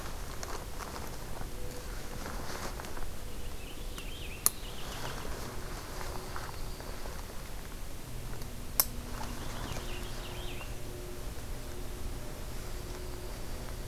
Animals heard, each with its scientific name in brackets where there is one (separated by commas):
Purple Finch (Haemorhous purpureus), Dark-eyed Junco (Junco hyemalis)